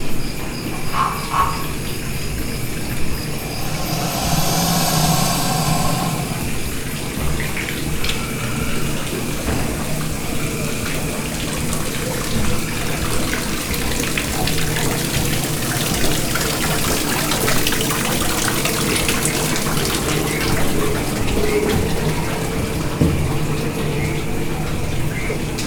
Does the water gradually get louder?
yes